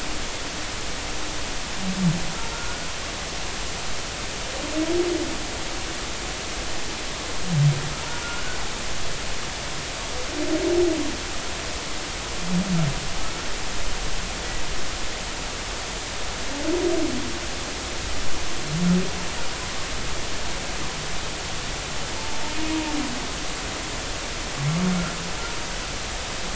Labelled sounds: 2.5	2.9	humpback whale, 1.3 to 1.5 kHz
8.2	8.6	humpback whale, 1.3 to 1.5 kHz
22.2	22.4	humpback whale, 0.83 to 0.93 kHz

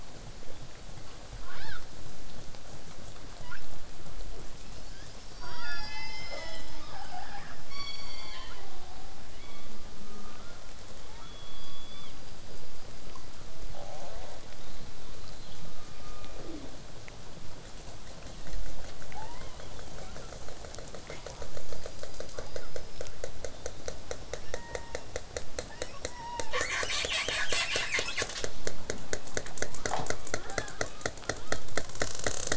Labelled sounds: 1.4	1.8	killer whale, southern resident, L pod, call S18, 0.47 to 5.8 kHz
3.4	3.6	killer whale, southern resident, 0.76 to 5.8 kHz
4.5	5.3	killer whale, southern resident, L pod, call S19, 1.2 to 5.7 kHz
5.4	6.5	killer whale, southern resident, 0.33 to 7.4 kHz
6.2	7.6	killer whale, southern resident, call S10, 0.25 to 8.0 kHz
7.7	9.2	killer whale, southern resident, J pod, call S03, 0.33 to 8.0 kHz
9.3	10.8	killer whale, southern resident, 0.83 to 5.5 kHz
11.1	12.2	killer whale, southern resident, 0.87 to 3.6 kHz
13.7	16.5	killer whale, southern resident, 0.33 to 4.6 kHz
19.1	20.3	killer whale, southern resident, 0.58 to 3.9 kHz
21.6	23.1	killer whale, southern resident, 0.49 to 5.3 kHz
24.4	25.1	killer whale, southern resident, call S16, 0.76 to 3.9 kHz
25.6	26.5	killer whale, southern resident, 0.65 to 5.8 kHz
26.5	28.5	killer whale, southern resident, call S10, 0.36 to 8.0 kHz
31.2	31.6	killer whale, southern resident, L pod, call S18, 0.33 to 4.7 kHz

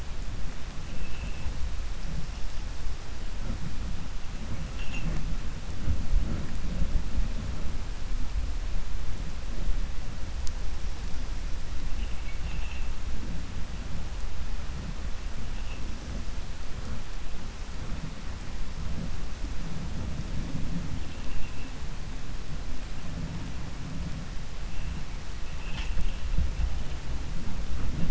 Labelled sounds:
11.9	12.9	vessel noise, 1.9 to 3.6 kHz
21.0	21.7	vessel noise, 2.5 to 3.6 kHz

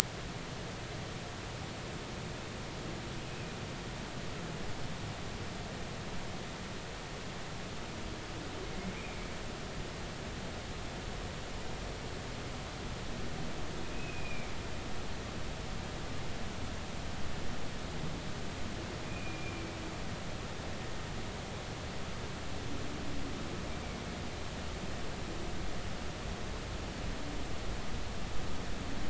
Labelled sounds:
9.0	9.3	humpback whale, 2.2 to 2.6 kHz
13.9	14.5	humpback whale, 2.2 to 2.6 kHz
19.0	19.7	humpback whale, 2.3 to 2.5 kHz

